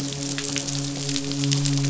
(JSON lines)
{"label": "biophony, midshipman", "recorder": "SoundTrap 500"}